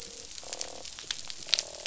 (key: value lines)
label: biophony, croak
recorder: SoundTrap 500